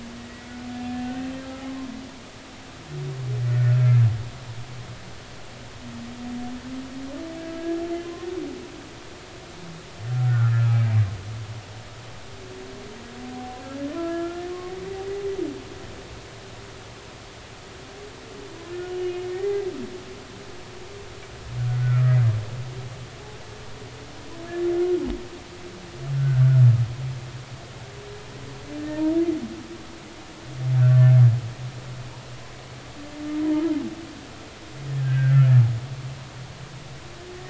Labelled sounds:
0.2	1.3	humpback whale, 1.4 to 2.0 kHz
3.5	4.0	humpback whale, 1.3 to 1.5 kHz
7.6	7.8	humpback whale, 1.6 to 1.8 kHz
10.1	10.6	humpback whale, 1.2 to 1.6 kHz
13.6	14.4	humpback whale, 0.96 to 1.8 kHz
18.7	19.3	humpback whale, 1.4 to 2.9 kHz
20.4	20.7	humpback whale, 1.9 to 2.1 kHz
21.8	22.2	humpback whale, 1.2 to 2.0 kHz
26.1	26.6	humpback whale, 1.3 to 1.6 kHz
30.9	31.1	humpback whale, 1.7 to 1.8 kHz
34.4	35.4	humpback whale, 0.86 to 1.7 kHz

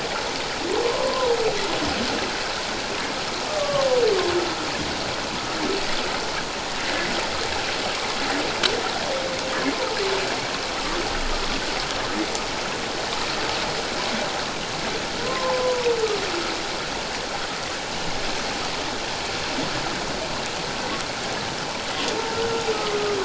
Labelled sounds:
0.8	1.3	humpback whale, 0.91 to 1.2 kHz
3.5	3.9	humpback whale, 1.0 to 1.2 kHz
15.2	16.0	humpback whale, 0.88 to 1.1 kHz

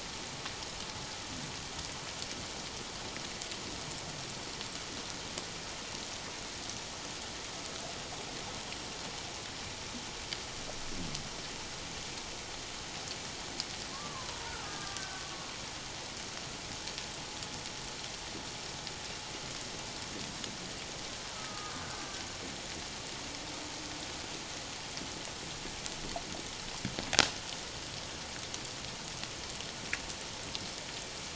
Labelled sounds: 13.9	15.3	killer whale, Bigg's (transient), 0.91 to 1.7 kHz
21.3	22.2	killer whale, Bigg's (transient), 1.2 to 1.6 kHz

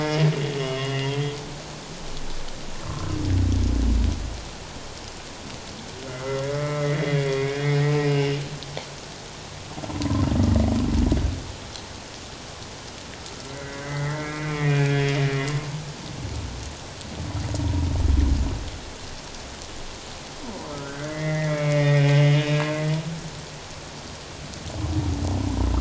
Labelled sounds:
0.6	1.4	humpback whale, 2.0 to 3.3 kHz
2.9	3.2	humpback whale, 1.0 to 1.4 kHz
6.1	8.4	humpback whale, 1.1 to 3.4 kHz
10.0	10.3	humpback whale, 0.91 to 1.1 kHz
13.5	15.5	humpback whale, 1.7 to 3.3 kHz
17.6	17.9	humpback whale, 0.91 to 1.0 kHz
20.7	22.8	humpback whale, 0.94 to 3.0 kHz

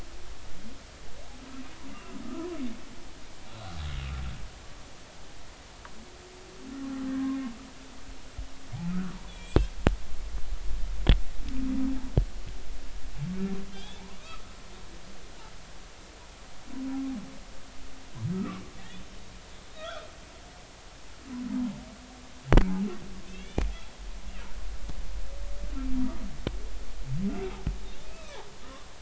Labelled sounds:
7.1	7.4	humpback whale, 0.99 to 1.7 kHz
8.9	9.6	humpback whale, 1.1 to 3.6 kHz
13.7	14.4	humpback whale, 1.1 to 3.6 kHz
18.3	18.6	humpback whale, 1.1 to 1.4 kHz
19.8	20.1	humpback whale, 1.2 to 1.6 kHz
23.3	23.7	humpback whale, 2.1 to 3.6 kHz
28.1	28.4	humpback whale, 1.2 to 2.7 kHz

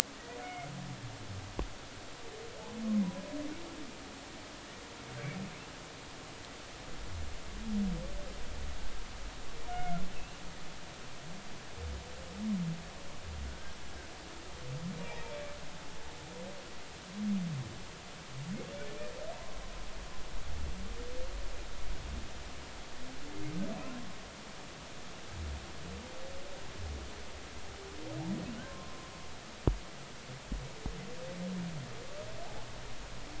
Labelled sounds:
0.4	0.7	humpback whale, 2.0 to 2.2 kHz
9.7	10.0	humpback whale, 1.3 to 1.5 kHz
13.5	13.8	humpback whale, 1.4 to 1.7 kHz
16.0	16.3	humpback whale, 0.80 to 0.96 kHz
28.4	29.0	humpback whale, 1.0 to 3.2 kHz

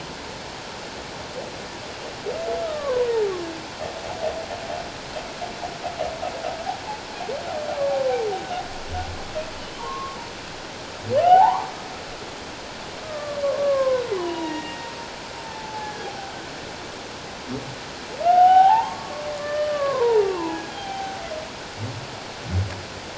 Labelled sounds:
2.6	3.1	humpback whale, 0.94 to 1.4 kHz
9.8	10.2	humpback whale, 0.88 to 1.2 kHz
11.2	11.7	humpback whale, 0.78 to 1.6 kHz
13.0	14.9	humpback whale, 0.88 to 3.9 kHz
15.4	16.1	humpback whale, 0.78 to 1.8 kHz
18.2	21.2	humpback whale, 0.78 to 3.3 kHz

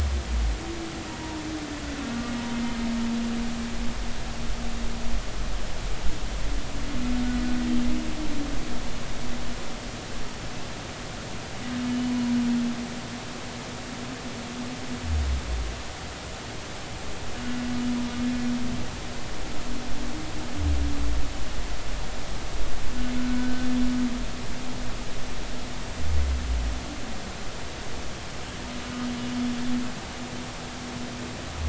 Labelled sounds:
12.1	12.3	humpback whale, 0.93 to 1.1 kHz
23.2	23.7	humpback whale, 1.4 to 1.6 kHz

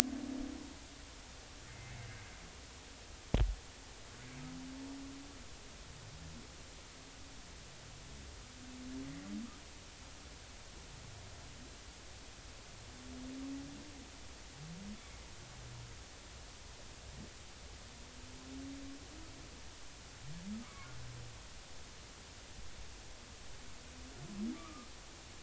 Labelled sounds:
1.7	2.1	humpback whale, 2.0 to 2.2 kHz
20.6	20.9	humpback whale, 0.99 to 2.3 kHz
24.5	24.9	humpback whale, 1.1 to 1.3 kHz

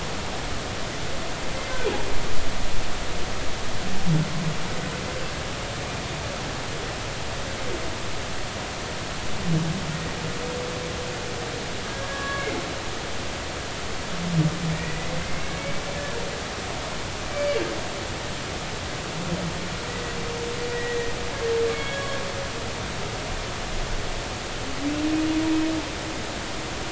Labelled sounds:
12.1	12.6	humpback whale, 1.1 to 2.3 kHz
14.7	15.8	humpback whale, 2.0 to 2.5 kHz
17.3	17.6	humpback whale, 2.2 to 2.4 kHz
20.7	22.2	humpback whale, 1.6 to 3.4 kHz

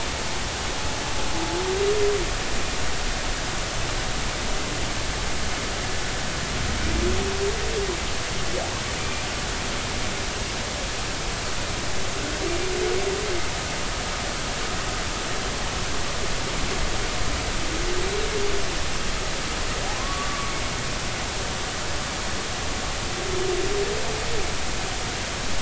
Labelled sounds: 9.0	9.2	humpback whale, 2.3 to 2.5 kHz
19.9	20.5	humpback whale, 0.99 to 1.2 kHz

